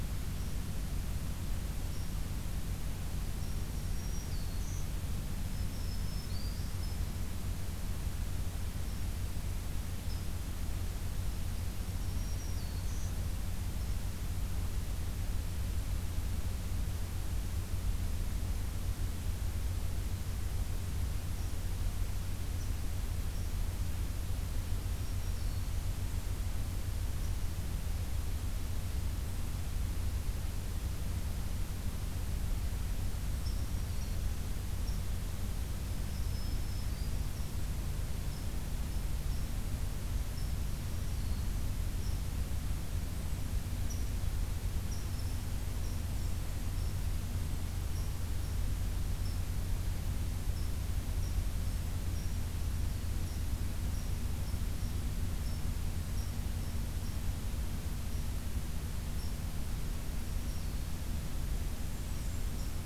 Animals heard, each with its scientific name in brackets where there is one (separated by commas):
Black-throated Green Warbler (Setophaga virens), Blackburnian Warbler (Setophaga fusca), Red Squirrel (Tamiasciurus hudsonicus)